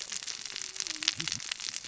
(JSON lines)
{"label": "biophony, cascading saw", "recorder": "SoundTrap 600 or HydroMoth"}